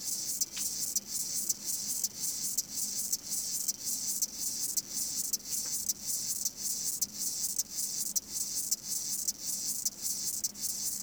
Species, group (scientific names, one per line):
Chorthippus apricarius
Orthoptera